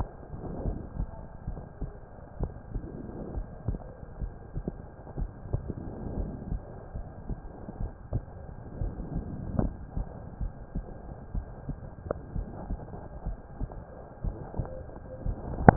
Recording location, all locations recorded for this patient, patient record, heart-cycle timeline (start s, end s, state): pulmonary valve (PV)
aortic valve (AV)+pulmonary valve (PV)+tricuspid valve (TV)+mitral valve (MV)
#Age: Child
#Sex: Male
#Height: 141.0 cm
#Weight: 39.8 kg
#Pregnancy status: False
#Murmur: Absent
#Murmur locations: nan
#Most audible location: nan
#Systolic murmur timing: nan
#Systolic murmur shape: nan
#Systolic murmur grading: nan
#Systolic murmur pitch: nan
#Systolic murmur quality: nan
#Diastolic murmur timing: nan
#Diastolic murmur shape: nan
#Diastolic murmur grading: nan
#Diastolic murmur pitch: nan
#Diastolic murmur quality: nan
#Outcome: Normal
#Campaign: 2015 screening campaign
0.00	0.62	unannotated
0.62	0.78	S1
0.78	0.98	systole
0.98	1.10	S2
1.10	1.48	diastole
1.48	1.62	S1
1.62	1.78	systole
1.78	1.92	S2
1.92	2.38	diastole
2.38	2.52	S1
2.52	2.72	systole
2.72	2.82	S2
2.82	3.34	diastole
3.34	3.48	S1
3.48	3.66	systole
3.66	3.80	S2
3.80	4.18	diastole
4.18	4.34	S1
4.34	4.53	systole
4.53	4.66	S2
4.66	5.16	diastole
5.16	5.32	S1
5.32	5.50	systole
5.50	5.64	S2
5.64	6.12	diastole
6.12	6.30	S1
6.30	6.46	systole
6.46	6.60	S2
6.60	6.92	diastole
6.92	7.08	S1
7.08	7.25	systole
7.25	7.38	S2
7.38	7.77	diastole
7.77	7.92	S1
7.92	8.10	systole
8.10	8.24	S2
8.24	8.78	diastole
8.78	8.94	S1
8.94	9.12	systole
9.12	9.24	S2
9.24	9.57	diastole
9.57	9.74	S1
9.74	9.94	systole
9.94	10.08	S2
10.08	10.36	diastole
10.36	10.54	S1
10.54	10.71	systole
10.71	10.86	S2
10.86	11.31	diastole
11.31	11.46	S1
11.46	11.65	systole
11.65	11.78	S2
11.78	12.32	diastole
12.32	12.50	S1
12.50	12.66	systole
12.66	12.80	S2
12.80	13.22	diastole
13.22	13.38	S1
13.38	13.57	systole
13.57	13.70	S2
13.70	14.21	diastole
14.21	14.36	S1
14.36	14.54	systole
14.54	14.70	S2
14.70	15.22	diastole
15.22	15.38	S1
15.38	15.76	unannotated